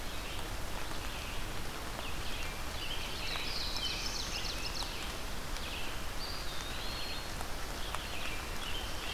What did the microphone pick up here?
Red-eyed Vireo, American Robin, Black-throated Blue Warbler, Ovenbird, Eastern Wood-Pewee